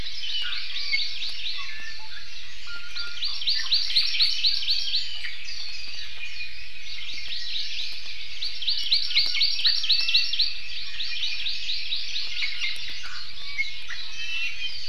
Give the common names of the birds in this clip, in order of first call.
Hawaii Amakihi, Iiwi, Warbling White-eye